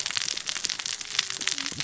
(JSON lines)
{"label": "biophony, cascading saw", "recorder": "SoundTrap 600 or HydroMoth"}